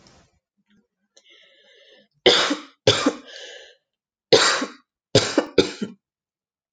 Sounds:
Cough